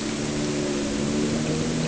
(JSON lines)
{"label": "anthrophony, boat engine", "recorder": "HydroMoth"}